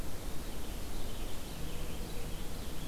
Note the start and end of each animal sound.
[0.00, 2.87] Purple Finch (Haemorhous purpureus)

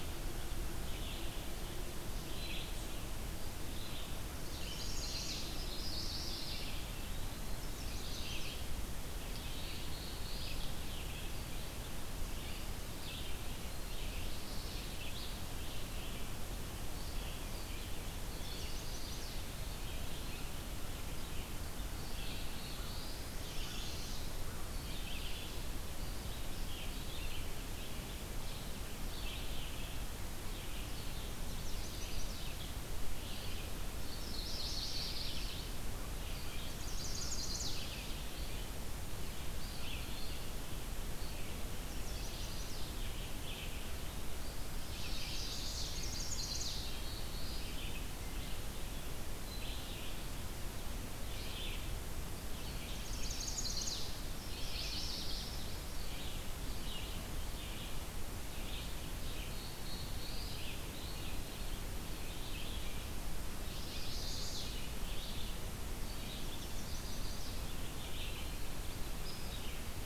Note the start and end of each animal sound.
[0.00, 38.81] Red-eyed Vireo (Vireo olivaceus)
[4.41, 5.48] Chestnut-sided Warbler (Setophaga pensylvanica)
[5.38, 6.72] Yellow-rumped Warbler (Setophaga coronata)
[7.39, 8.69] Chestnut-sided Warbler (Setophaga pensylvanica)
[9.51, 10.68] Black-throated Blue Warbler (Setophaga caerulescens)
[12.17, 14.12] Eastern Wood-Pewee (Contopus virens)
[18.27, 19.39] Chestnut-sided Warbler (Setophaga pensylvanica)
[19.32, 20.59] Eastern Wood-Pewee (Contopus virens)
[21.90, 23.36] Black-throated Blue Warbler (Setophaga caerulescens)
[23.35, 24.33] Yellow-rumped Warbler (Setophaga coronata)
[31.22, 32.55] Chestnut-sided Warbler (Setophaga pensylvanica)
[34.05, 35.65] Yellow-rumped Warbler (Setophaga coronata)
[36.56, 37.95] Chestnut-sided Warbler (Setophaga pensylvanica)
[39.39, 70.05] Red-eyed Vireo (Vireo olivaceus)
[39.53, 40.43] Eastern Wood-Pewee (Contopus virens)
[41.67, 42.86] Chestnut-sided Warbler (Setophaga pensylvanica)
[44.85, 46.87] Chestnut-sided Warbler (Setophaga pensylvanica)
[46.68, 47.80] Black-throated Blue Warbler (Setophaga caerulescens)
[52.85, 54.11] Chestnut-sided Warbler (Setophaga pensylvanica)
[54.21, 55.61] Yellow-rumped Warbler (Setophaga coronata)
[59.38, 60.74] Black-throated Blue Warbler (Setophaga caerulescens)
[63.69, 64.84] Chestnut-sided Warbler (Setophaga pensylvanica)
[66.41, 67.57] Chestnut-sided Warbler (Setophaga pensylvanica)
[67.83, 68.78] Eastern Wood-Pewee (Contopus virens)

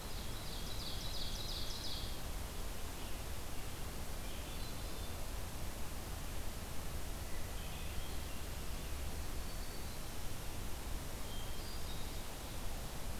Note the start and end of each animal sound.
[0.00, 2.17] Ovenbird (Seiurus aurocapilla)
[4.15, 5.28] Hermit Thrush (Catharus guttatus)
[7.16, 8.28] Hermit Thrush (Catharus guttatus)
[9.22, 10.26] Black-throated Green Warbler (Setophaga virens)
[11.06, 12.23] Hermit Thrush (Catharus guttatus)

